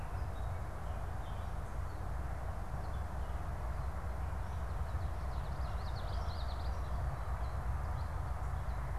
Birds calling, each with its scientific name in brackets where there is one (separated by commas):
Common Yellowthroat (Geothlypis trichas), Ovenbird (Seiurus aurocapilla)